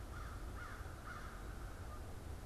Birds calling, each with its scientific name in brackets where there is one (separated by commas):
American Crow (Corvus brachyrhynchos), unidentified bird